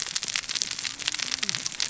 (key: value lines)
label: biophony, cascading saw
recorder: SoundTrap 600 or HydroMoth